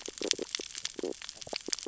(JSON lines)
{"label": "biophony, stridulation", "recorder": "SoundTrap 600 or HydroMoth"}